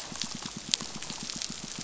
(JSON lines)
{"label": "biophony, pulse", "recorder": "SoundTrap 500"}